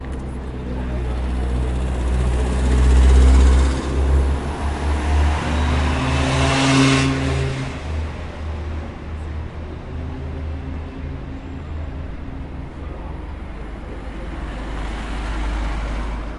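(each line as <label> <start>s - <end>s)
Multiple vehicles pass by continuously with fluctuating loudness. 0.0s - 7.5s
Cars passing by continuously in the background. 7.8s - 14.6s
Low-volume voices of multiple people speaking softly in the distance. 7.8s - 14.6s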